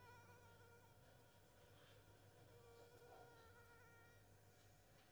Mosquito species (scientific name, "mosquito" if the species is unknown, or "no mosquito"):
Anopheles squamosus